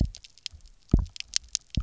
{"label": "biophony, double pulse", "recorder": "SoundTrap 300"}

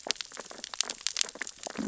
{"label": "biophony, sea urchins (Echinidae)", "recorder": "SoundTrap 600 or HydroMoth"}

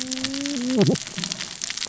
{"label": "biophony, cascading saw", "recorder": "SoundTrap 600 or HydroMoth"}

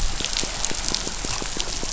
{"label": "biophony", "recorder": "SoundTrap 500"}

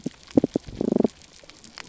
{"label": "biophony, damselfish", "recorder": "SoundTrap 300"}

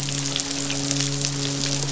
{"label": "biophony, midshipman", "recorder": "SoundTrap 500"}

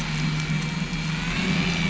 {"label": "anthrophony, boat engine", "recorder": "SoundTrap 500"}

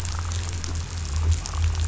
{"label": "anthrophony, boat engine", "recorder": "SoundTrap 500"}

